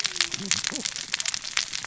{"label": "biophony, cascading saw", "recorder": "SoundTrap 600 or HydroMoth"}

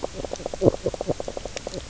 {"label": "biophony, knock croak", "recorder": "SoundTrap 300"}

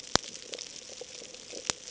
{"label": "ambient", "recorder": "HydroMoth"}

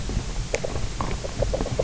{"label": "biophony, grazing", "recorder": "SoundTrap 300"}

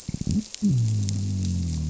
{"label": "biophony", "recorder": "SoundTrap 300"}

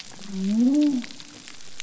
{"label": "biophony", "recorder": "SoundTrap 300"}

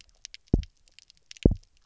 {"label": "biophony, double pulse", "recorder": "SoundTrap 300"}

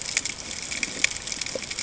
{"label": "ambient", "recorder": "HydroMoth"}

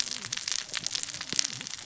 {"label": "biophony, cascading saw", "recorder": "SoundTrap 600 or HydroMoth"}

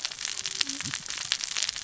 {"label": "biophony, cascading saw", "recorder": "SoundTrap 600 or HydroMoth"}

